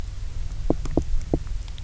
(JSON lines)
{"label": "biophony, knock", "recorder": "SoundTrap 300"}